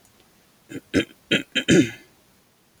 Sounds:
Throat clearing